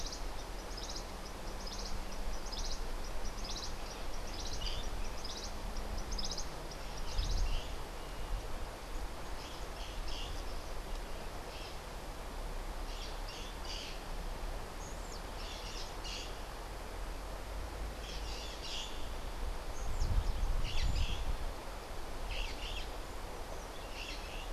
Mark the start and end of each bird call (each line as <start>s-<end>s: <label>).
0.0s-7.6s: Cabanis's Wren (Cantorchilus modestus)
4.5s-10.5s: White-crowned Parrot (Pionus senilis)
11.3s-24.5s: White-crowned Parrot (Pionus senilis)